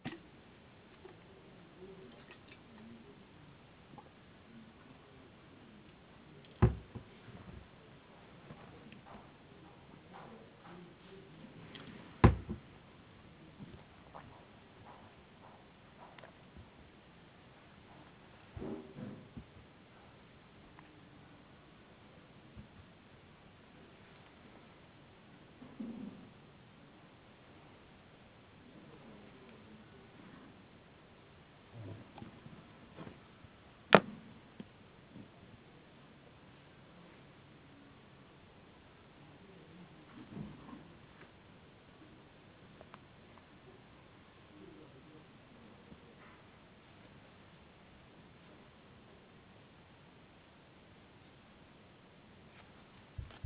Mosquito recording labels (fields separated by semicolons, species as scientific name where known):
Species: no mosquito; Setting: insect culture